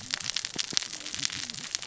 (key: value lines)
label: biophony, cascading saw
recorder: SoundTrap 600 or HydroMoth